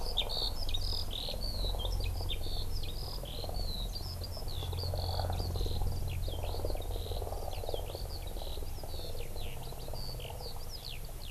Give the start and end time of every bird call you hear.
[0.00, 11.31] Eurasian Skylark (Alauda arvensis)

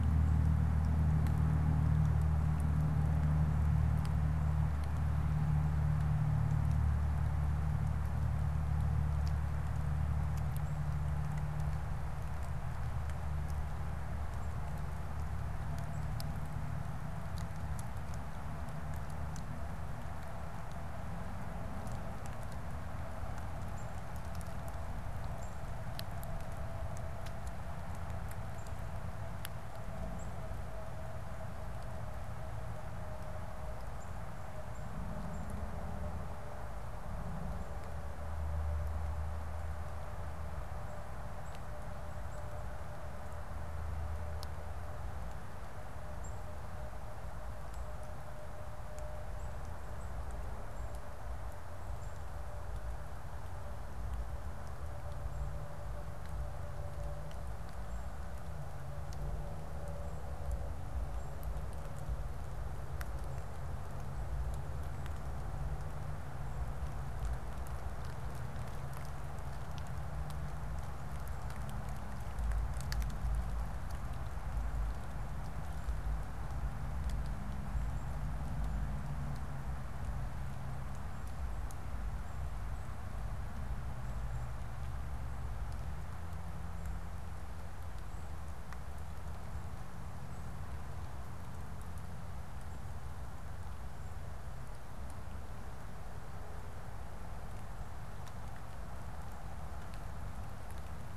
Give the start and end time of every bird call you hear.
[23.55, 61.85] unidentified bird

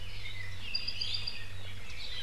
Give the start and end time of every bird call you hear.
[0.17, 1.47] Apapane (Himatione sanguinea)
[0.87, 1.27] Iiwi (Drepanis coccinea)

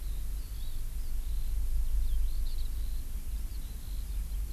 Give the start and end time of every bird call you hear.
[0.00, 4.53] Eurasian Skylark (Alauda arvensis)

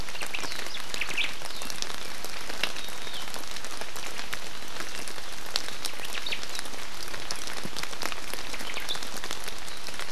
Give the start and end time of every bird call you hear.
[0.11, 0.41] Omao (Myadestes obscurus)
[0.91, 1.31] Omao (Myadestes obscurus)
[6.01, 6.41] Omao (Myadestes obscurus)
[8.61, 8.91] Omao (Myadestes obscurus)

